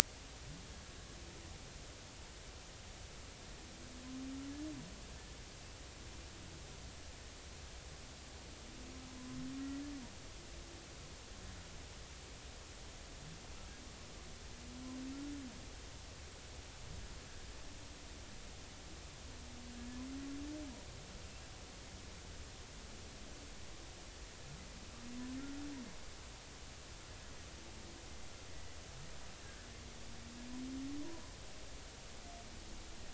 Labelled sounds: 29.4	29.7	humpback whale, 1.5 to 1.8 kHz
31.0	31.3	humpback whale, 0.93 to 1.1 kHz

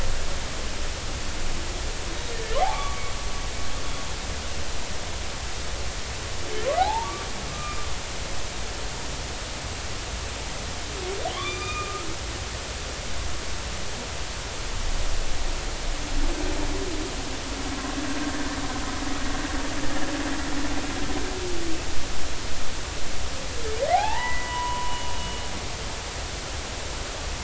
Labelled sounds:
2.1	3.0	humpback whale, 0.80 to 3.9 kHz
6.8	7.8	humpback whale, 0.80 to 1.3 kHz
11.4	11.9	humpback whale, 2.2 to 2.6 kHz
12.3	13.1	humpback whale, 1.0 to 1.3 kHz
23.9	25.1	humpback whale, 0.80 to 3.0 kHz

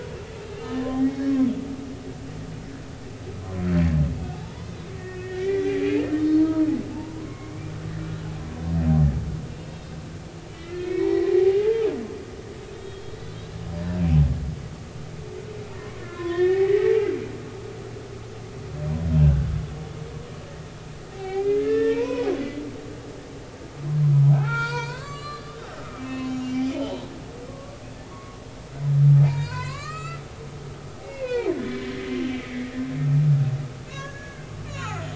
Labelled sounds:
0.4	1.3	humpback whale, 0.90 to 5.6 kHz
4.3	7.5	humpback whale, 0.80 to 4.4 kHz
8.2	8.5	humpback whale, 2.1 to 2.3 kHz
9.6	9.9	humpback whale, 2.6 to 2.7 kHz
10.5	11.8	humpback whale, 0.80 to 5.5 kHz
12.7	13.4	humpback whale, 3.6 to 4.2 kHz
16.0	17.1	humpback whale, 0.80 to 3.7 kHz
19.2	19.5	humpback whale, 1.4 to 1.6 kHz
21.1	22.3	humpback whale, 0.80 to 3.9 kHz
24.3	27.8	humpback whale, 0.80 to 7.7 kHz
28.1	28.4	humpback whale, 0.90 to 1.2 kHz
29.2	31.5	humpback whale, 0.80 to 7.4 kHz
32.4	32.7	humpback whale, 2.1 to 2.3 kHz
33.9	35.1	humpback whale, 0.99 to 7.1 kHz

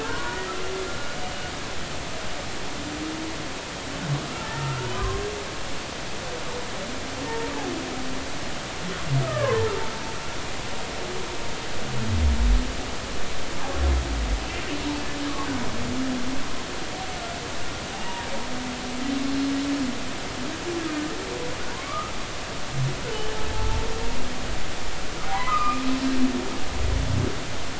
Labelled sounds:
0.0	0.5	humpback whale, 0.83 to 1.7 kHz
4.3	5.2	humpback whale, 0.90 to 1.9 kHz
7.2	7.5	humpback whale, 0.86 to 0.96 kHz
9.2	9.6	humpback whale, 0.96 to 1.9 kHz
17.9	18.3	humpback whale, 0.80 to 0.99 kHz
21.7	22.1	humpback whale, 0.93 to 1.3 kHz
25.3	25.8	humpback whale, 0.90 to 2.6 kHz

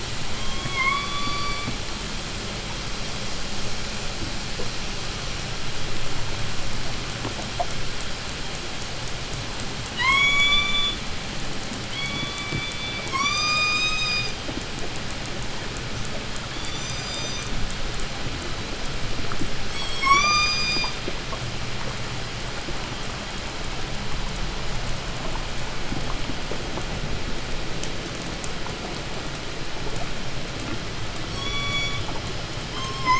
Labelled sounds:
0.0	1.9	killer whale, call S17, 0.81 to 4.8 kHz
9.8	11.2	killer whale, call S16, 0.80 to 8.0 kHz
11.6	13.1	killer whale, call S16, 0.89 to 6.1 kHz
13.1	14.4	killer whale, 0.81 to 8.0 kHz
16.4	17.6	killer whale, 2.1 to 8.0 kHz
19.6	21.1	killer whale, 0.87 to 8.0 kHz
31.1	32.3	killer whale, call S16, 0.98 to 8.0 kHz
32.6	33.1	killer whale, call S17, 0.79 to 8.0 kHz

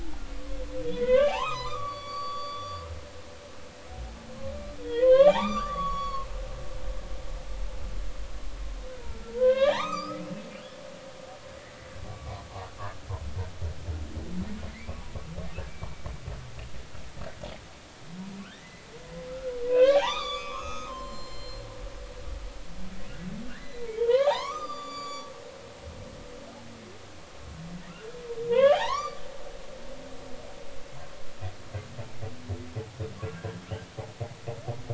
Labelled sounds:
0.9	2.8	humpback whale, 0.80 to 8.0 kHz
4.8	6.3	humpback whale, 0.80 to 7.3 kHz
9.3	10.2	humpback whale, 0.80 to 5.2 kHz
15.7	16.1	humpback whale, 2.2 to 2.4 kHz
18.4	21.6	humpback whale, 0.80 to 7.4 kHz
23.5	25.3	humpback whale, 0.80 to 8.0 kHz
28.5	29.2	humpback whale, 0.80 to 4.8 kHz
33.3	33.6	humpback whale, 1.5 to 1.7 kHz

